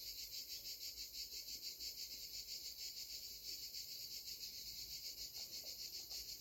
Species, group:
Cicada orni, Cicadidae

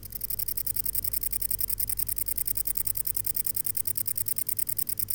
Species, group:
Vichetia oblongicollis, Orthoptera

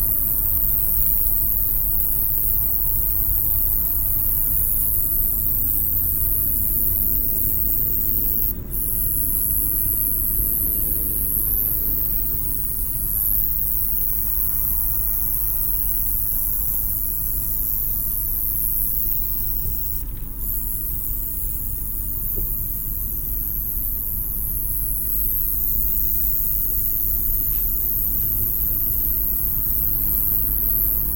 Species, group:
Roeseliana roeselii, Orthoptera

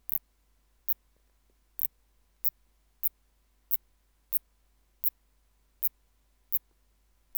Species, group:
Phaneroptera nana, Orthoptera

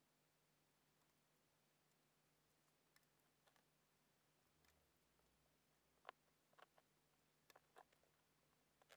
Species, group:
Eumodicogryllus bordigalensis, Orthoptera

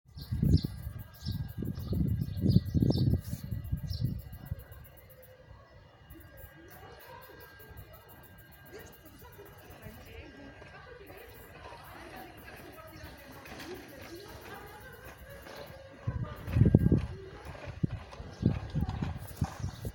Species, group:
Tettigettalna mariae, Cicadidae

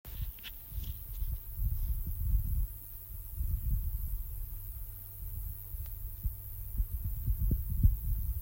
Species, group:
Roeseliana roeselii, Orthoptera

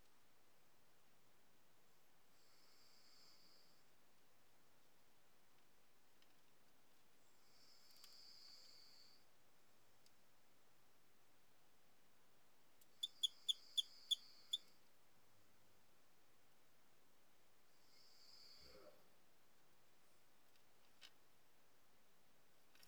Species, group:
Eugryllodes escalerae, Orthoptera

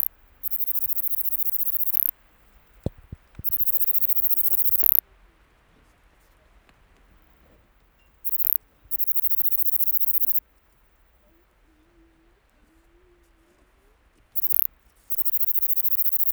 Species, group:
Platycleis affinis, Orthoptera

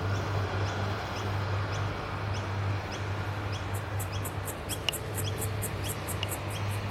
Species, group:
Yoyetta celis, Cicadidae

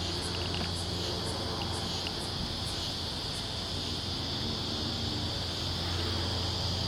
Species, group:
Yoyetta repetens, Cicadidae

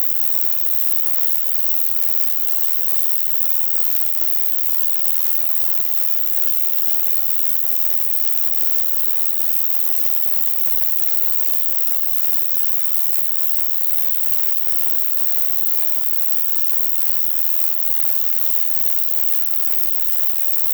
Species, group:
Roeseliana roeselii, Orthoptera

